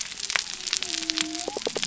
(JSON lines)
{"label": "biophony", "recorder": "SoundTrap 300"}